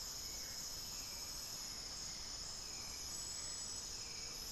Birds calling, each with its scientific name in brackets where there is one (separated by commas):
Speckled Chachalaca (Ortalis guttata), Hauxwell's Thrush (Turdus hauxwelli)